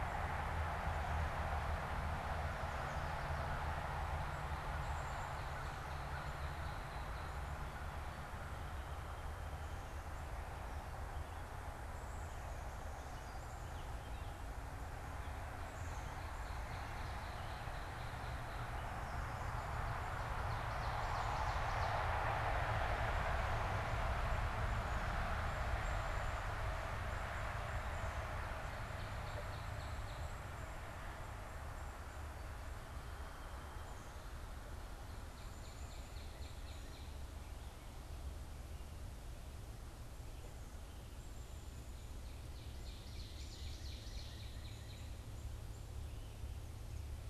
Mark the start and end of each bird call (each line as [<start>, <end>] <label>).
[4.29, 7.49] Northern Cardinal (Cardinalis cardinalis)
[12.79, 14.59] Gray Catbird (Dumetella carolinensis)
[15.59, 16.39] Black-capped Chickadee (Poecile atricapillus)
[15.99, 18.99] Northern Cardinal (Cardinalis cardinalis)
[20.19, 22.59] Ovenbird (Seiurus aurocapilla)
[27.99, 30.59] Northern Cardinal (Cardinalis cardinalis)
[34.69, 37.29] Northern Cardinal (Cardinalis cardinalis)
[42.59, 44.69] Ovenbird (Seiurus aurocapilla)
[42.69, 45.29] Northern Cardinal (Cardinalis cardinalis)